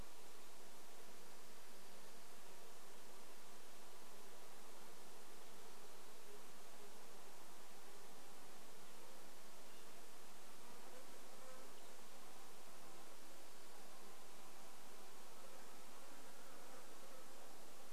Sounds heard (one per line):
Dark-eyed Junco song
insect buzz
unidentified sound